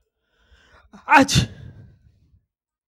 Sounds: Sneeze